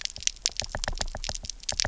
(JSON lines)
{"label": "biophony, knock", "recorder": "SoundTrap 300"}